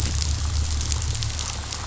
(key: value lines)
label: anthrophony, boat engine
recorder: SoundTrap 500